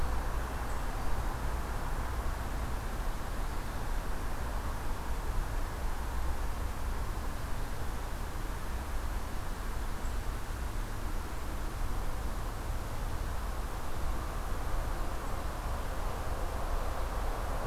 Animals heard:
forest ambience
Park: Marsh-Billings-Rockefeller National Historical Park